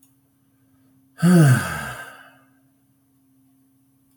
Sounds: Sigh